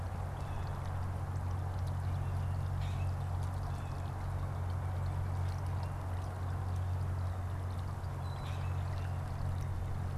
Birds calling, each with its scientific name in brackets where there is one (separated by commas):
Common Grackle (Quiscalus quiscula), Blue Jay (Cyanocitta cristata)